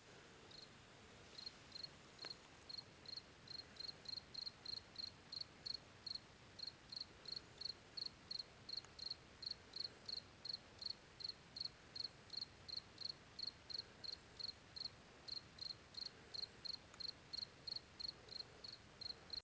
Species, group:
Gryllus campestris
Orthoptera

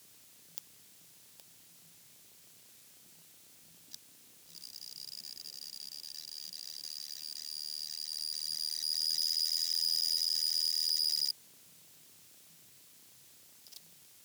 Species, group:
Pteronemobius lineolatus
Orthoptera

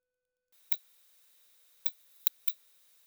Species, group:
Leptophyes laticauda
Orthoptera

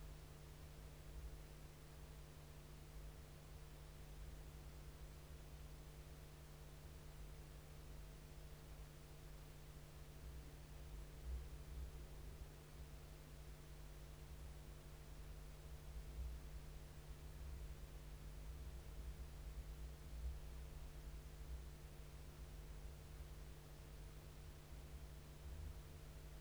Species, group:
Chorthippus dichrous
Orthoptera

